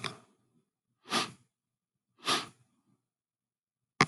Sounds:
Sniff